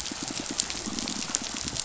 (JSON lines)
{"label": "biophony, pulse", "recorder": "SoundTrap 500"}